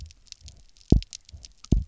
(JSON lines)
{"label": "biophony, double pulse", "recorder": "SoundTrap 300"}